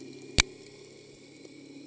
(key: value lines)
label: anthrophony, boat engine
recorder: HydroMoth